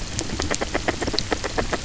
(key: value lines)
label: biophony
recorder: SoundTrap 300